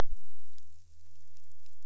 {"label": "biophony", "recorder": "SoundTrap 300"}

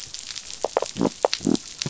{"label": "biophony", "recorder": "SoundTrap 500"}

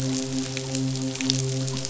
{"label": "biophony, midshipman", "recorder": "SoundTrap 500"}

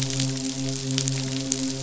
{"label": "biophony, midshipman", "recorder": "SoundTrap 500"}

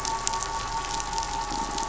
{"label": "anthrophony, boat engine", "recorder": "SoundTrap 500"}
{"label": "biophony", "recorder": "SoundTrap 500"}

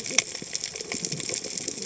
{"label": "biophony, cascading saw", "recorder": "HydroMoth"}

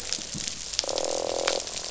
{"label": "biophony, croak", "recorder": "SoundTrap 500"}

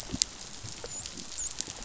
{"label": "biophony, dolphin", "recorder": "SoundTrap 500"}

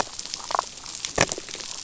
{"label": "biophony, damselfish", "recorder": "SoundTrap 500"}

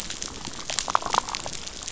{"label": "biophony, damselfish", "recorder": "SoundTrap 500"}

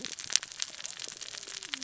{"label": "biophony, cascading saw", "recorder": "SoundTrap 600 or HydroMoth"}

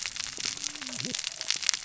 {"label": "biophony, cascading saw", "recorder": "SoundTrap 600 or HydroMoth"}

